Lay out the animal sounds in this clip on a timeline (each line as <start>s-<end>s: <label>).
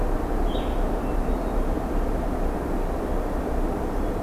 0.4s-0.8s: Blue-headed Vireo (Vireo solitarius)
0.9s-1.8s: Hermit Thrush (Catharus guttatus)